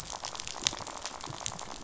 {"label": "biophony, rattle", "recorder": "SoundTrap 500"}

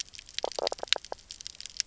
{"label": "biophony, knock croak", "recorder": "SoundTrap 300"}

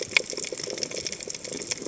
{"label": "biophony, chatter", "recorder": "HydroMoth"}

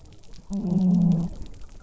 {"label": "biophony", "recorder": "SoundTrap 300"}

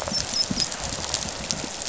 {"label": "biophony, dolphin", "recorder": "SoundTrap 500"}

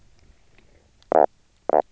{"label": "biophony, knock croak", "recorder": "SoundTrap 300"}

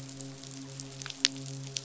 {"label": "biophony, midshipman", "recorder": "SoundTrap 500"}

